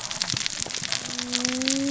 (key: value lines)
label: biophony, cascading saw
recorder: SoundTrap 600 or HydroMoth